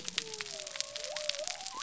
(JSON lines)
{"label": "biophony", "recorder": "SoundTrap 300"}